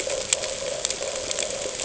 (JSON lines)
{"label": "ambient", "recorder": "HydroMoth"}